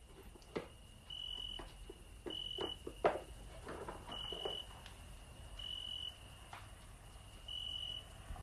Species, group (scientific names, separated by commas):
Oecanthus pellucens, Orthoptera